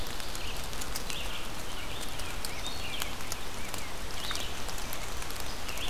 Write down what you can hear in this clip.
Red-eyed Vireo, American Crow, Yellow-rumped Warbler